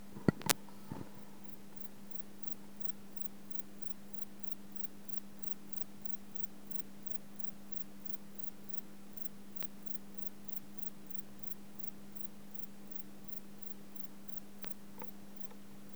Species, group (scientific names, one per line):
Metrioptera brachyptera
Orthoptera